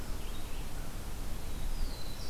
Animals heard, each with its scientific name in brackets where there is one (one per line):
Black-throated Blue Warbler (Setophaga caerulescens)
Red-eyed Vireo (Vireo olivaceus)